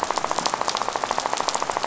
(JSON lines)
{"label": "biophony, rattle", "recorder": "SoundTrap 500"}